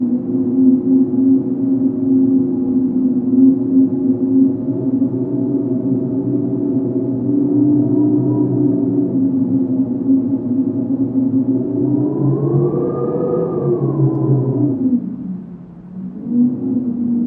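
A strong wind howls through a building. 0.0 - 15.5
Wind whistles inside a building. 15.9 - 17.3

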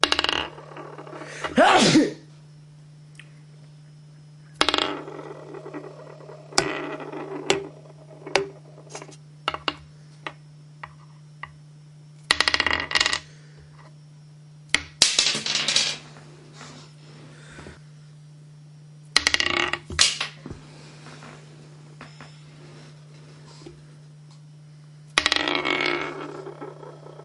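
A toy is spinning. 0.0 - 0.8
A man sneezes while spinning a toy. 1.4 - 2.3
A toy is being spun by a man. 4.2 - 14.2

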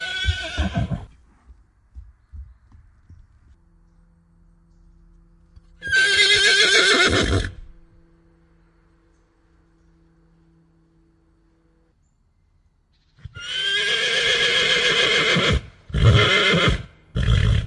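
A horse neighs loudly once nearby. 0.0 - 1.2
A horse neighs loudly once nearby. 5.9 - 8.0
A horse neighs repeatedly, the sound gradually fading. 13.4 - 17.7

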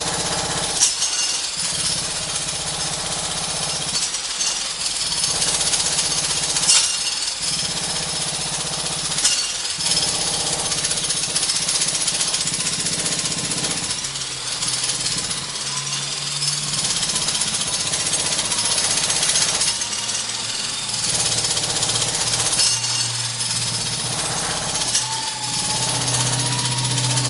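A jackhammer is heard in the distance. 0.0 - 27.3

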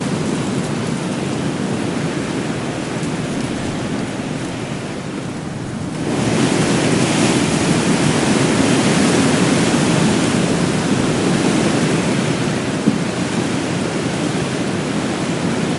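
Water waves retreat from the beach and fade away. 0.0 - 5.8
Water waves hitting the beach. 5.8 - 15.8

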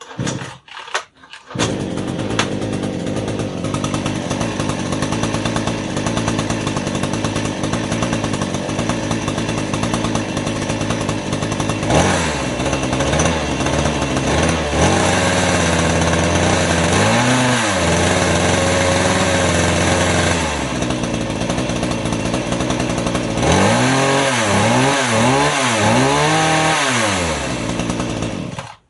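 A machine motor starts and gradually increases in volume while the sound becomes deeper as it approaches. 0.1 - 28.8

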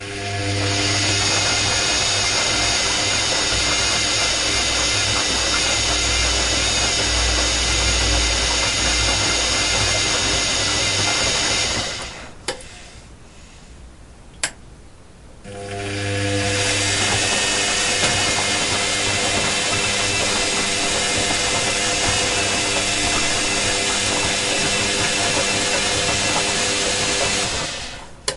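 A washing machine is operating. 0.0 - 12.7
A click occurs. 14.3 - 14.7
A washing machine is operating. 15.4 - 28.4

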